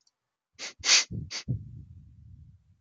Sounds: Sniff